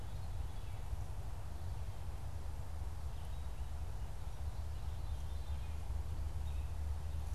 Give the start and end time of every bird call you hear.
[0.00, 7.34] Red-eyed Vireo (Vireo olivaceus)
[0.00, 7.34] Veery (Catharus fuscescens)

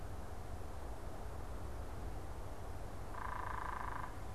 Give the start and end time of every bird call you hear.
[2.97, 4.27] unidentified bird

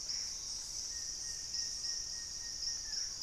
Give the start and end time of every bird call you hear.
[0.00, 0.98] Gray Antbird (Cercomacra cinerascens)
[0.88, 3.22] Plain-winged Antshrike (Thamnophilus schistaceus)
[2.58, 3.22] Purple-throated Fruitcrow (Querula purpurata)

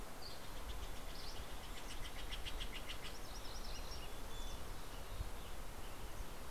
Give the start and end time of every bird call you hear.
[0.00, 3.30] Steller's Jay (Cyanocitta stelleri)
[0.10, 1.30] Mountain Chickadee (Poecile gambeli)
[0.10, 1.60] Dusky Flycatcher (Empidonax oberholseri)
[3.00, 4.20] MacGillivray's Warbler (Geothlypis tolmiei)
[3.60, 4.70] Mountain Chickadee (Poecile gambeli)
[3.70, 6.50] Western Tanager (Piranga ludoviciana)

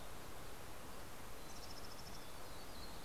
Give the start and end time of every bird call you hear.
[0.70, 3.00] Mountain Chickadee (Poecile gambeli)
[2.00, 3.04] Yellow-rumped Warbler (Setophaga coronata)

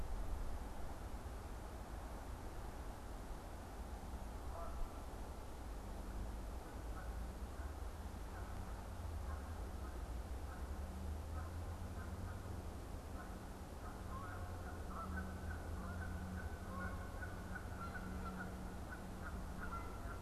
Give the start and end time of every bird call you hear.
[4.38, 20.21] Canada Goose (Branta canadensis)

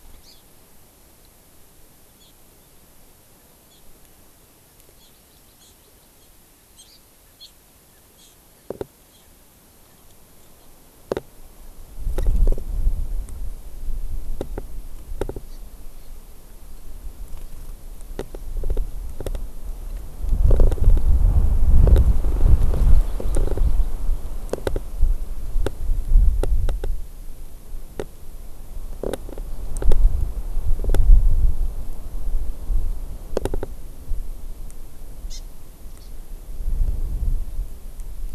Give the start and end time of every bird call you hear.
[0.14, 0.44] Hawaii Amakihi (Chlorodrepanis virens)
[5.14, 6.24] Hawaii Amakihi (Chlorodrepanis virens)
[35.24, 35.54] Hawaii Amakihi (Chlorodrepanis virens)
[35.94, 36.14] Hawaii Amakihi (Chlorodrepanis virens)

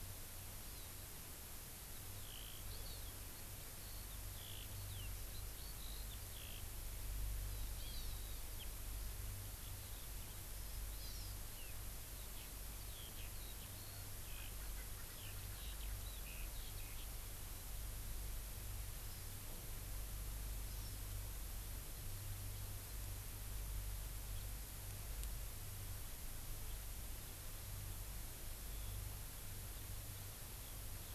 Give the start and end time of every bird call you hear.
[0.64, 0.94] Hawaii Amakihi (Chlorodrepanis virens)
[1.84, 6.64] Eurasian Skylark (Alauda arvensis)
[2.64, 3.14] Hawaii Amakihi (Chlorodrepanis virens)
[7.74, 8.14] Hawaii Amakihi (Chlorodrepanis virens)
[10.94, 11.34] Hawaii Amakihi (Chlorodrepanis virens)
[12.04, 17.04] Eurasian Skylark (Alauda arvensis)
[14.34, 15.94] Erckel's Francolin (Pternistis erckelii)

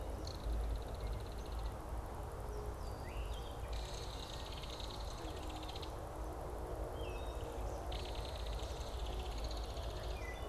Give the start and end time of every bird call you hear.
[0.00, 10.40] Belted Kingfisher (Megaceryle alcyon)
[3.00, 3.70] Wood Thrush (Hylocichla mustelina)

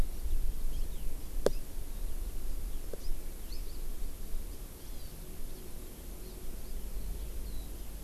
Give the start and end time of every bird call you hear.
[0.00, 8.04] Eurasian Skylark (Alauda arvensis)
[1.50, 1.60] House Finch (Haemorhous mexicanus)
[2.90, 3.10] House Finch (Haemorhous mexicanus)
[3.40, 3.60] House Finch (Haemorhous mexicanus)
[4.80, 5.10] Hawaii Amakihi (Chlorodrepanis virens)

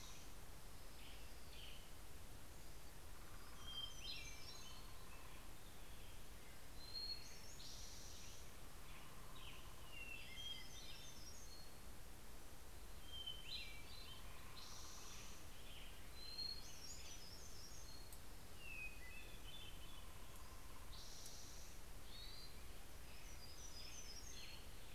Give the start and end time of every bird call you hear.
[0.00, 24.94] Hermit Thrush (Catharus guttatus)
[0.63, 2.13] Western Tanager (Piranga ludoviciana)
[2.43, 6.43] Hermit Warbler (Setophaga occidentalis)
[8.73, 11.43] Western Tanager (Piranga ludoviciana)
[9.03, 13.03] Hermit Warbler (Setophaga occidentalis)
[15.13, 20.03] Hermit Warbler (Setophaga occidentalis)
[22.43, 24.94] Hermit Warbler (Setophaga occidentalis)
[23.43, 24.94] Western Tanager (Piranga ludoviciana)

